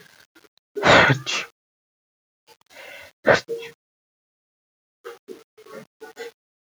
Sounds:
Sneeze